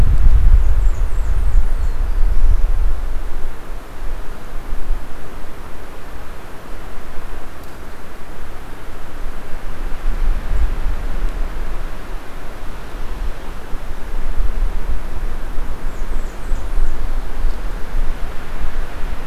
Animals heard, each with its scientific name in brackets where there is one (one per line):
Blackburnian Warbler (Setophaga fusca)
Black-throated Blue Warbler (Setophaga caerulescens)